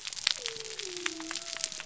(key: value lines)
label: biophony
recorder: SoundTrap 300